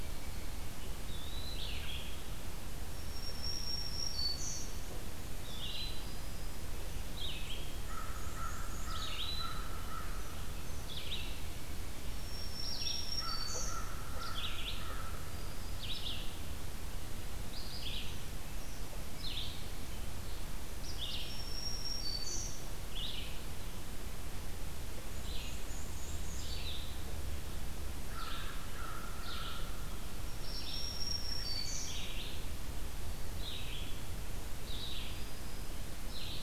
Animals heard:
Eastern Wood-Pewee (Contopus virens), American Crow (Corvus brachyrhynchos), Red-eyed Vireo (Vireo olivaceus), Black-and-white Warbler (Mniotilta varia), Black-throated Green Warbler (Setophaga virens)

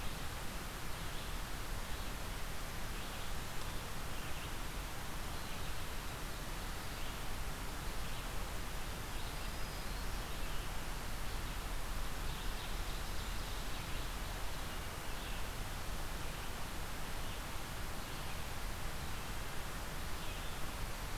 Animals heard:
Red-eyed Vireo (Vireo olivaceus), Black-throated Green Warbler (Setophaga virens), Ovenbird (Seiurus aurocapilla)

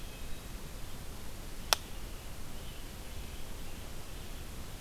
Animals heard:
American Robin (Turdus migratorius), Wood Thrush (Hylocichla mustelina)

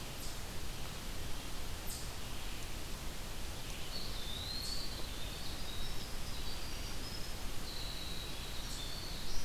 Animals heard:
Eastern Chipmunk (Tamias striatus), Black-throated Green Warbler (Setophaga virens), Eastern Wood-Pewee (Contopus virens), Winter Wren (Troglodytes hiemalis), Red-eyed Vireo (Vireo olivaceus)

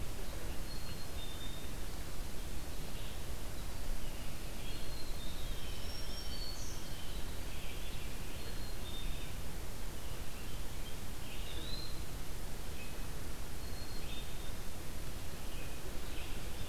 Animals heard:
Red-eyed Vireo (Vireo olivaceus), Eastern Wood-Pewee (Contopus virens), American Robin (Turdus migratorius), Blue Jay (Cyanocitta cristata), Black-capped Chickadee (Poecile atricapillus), Black-throated Green Warbler (Setophaga virens)

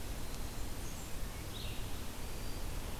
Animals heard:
Blackburnian Warbler (Setophaga fusca), Red-eyed Vireo (Vireo olivaceus)

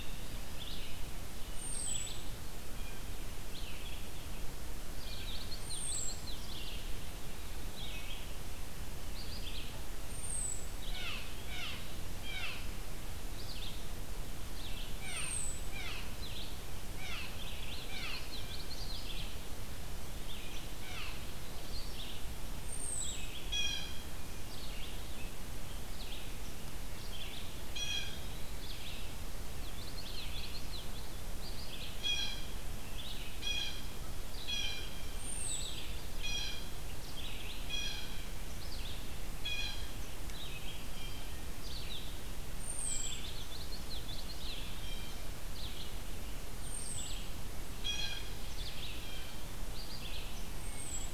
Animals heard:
American Robin (Turdus migratorius), Common Yellowthroat (Geothlypis trichas), Red-eyed Vireo (Vireo olivaceus), Blue Jay (Cyanocitta cristata)

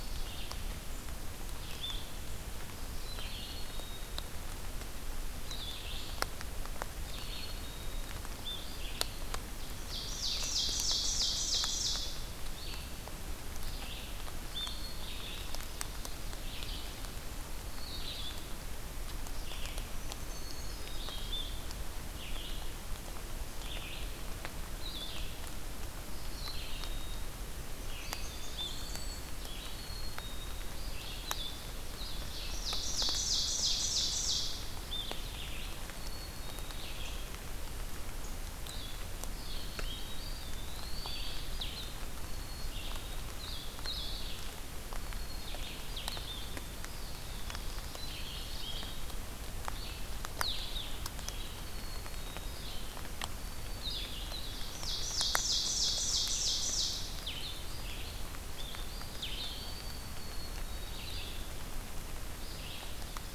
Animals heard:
Black-throated Green Warbler (Setophaga virens), Eastern Wood-Pewee (Contopus virens), Black-capped Chickadee (Poecile atricapillus), Ovenbird (Seiurus aurocapilla), Red-eyed Vireo (Vireo olivaceus), Blackburnian Warbler (Setophaga fusca)

